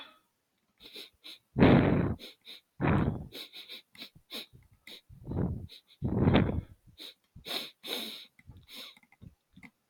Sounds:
Sniff